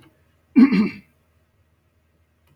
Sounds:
Throat clearing